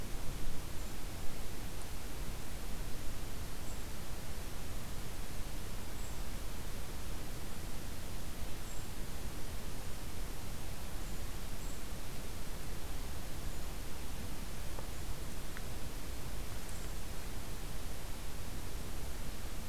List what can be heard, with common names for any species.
Brown Creeper